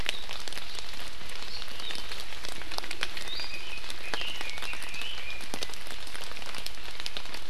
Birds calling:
Iiwi (Drepanis coccinea), Red-billed Leiothrix (Leiothrix lutea)

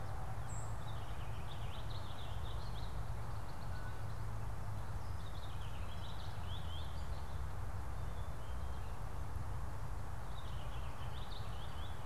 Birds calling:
Purple Finch (Haemorhous purpureus), White-throated Sparrow (Zonotrichia albicollis)

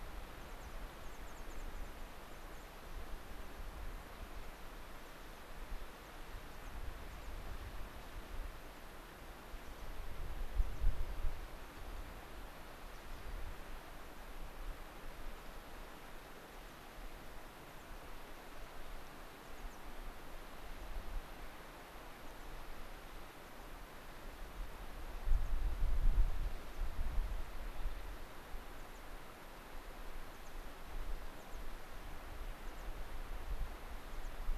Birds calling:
American Pipit (Anthus rubescens), Rock Wren (Salpinctes obsoletus), unidentified bird

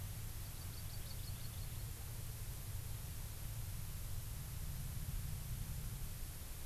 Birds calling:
Hawaii Amakihi (Chlorodrepanis virens)

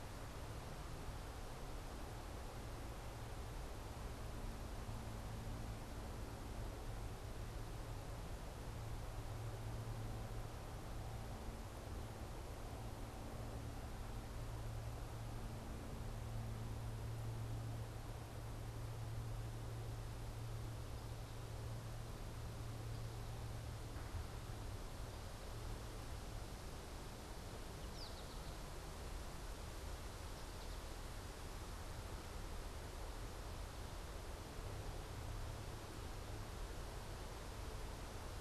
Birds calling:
American Goldfinch (Spinus tristis)

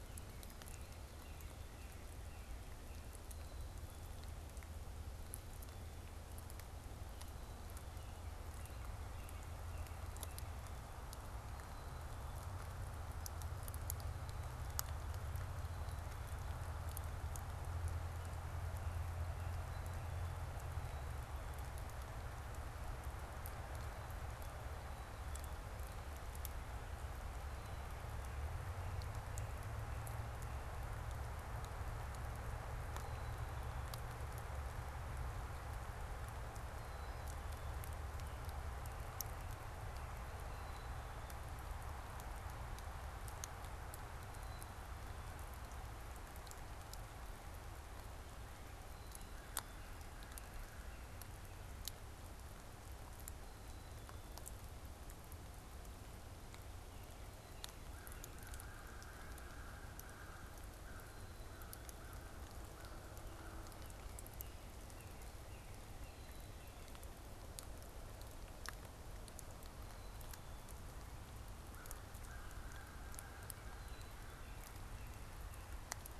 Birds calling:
Black-capped Chickadee (Poecile atricapillus), American Crow (Corvus brachyrhynchos), Northern Cardinal (Cardinalis cardinalis)

